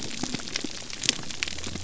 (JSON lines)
{"label": "biophony", "recorder": "SoundTrap 300"}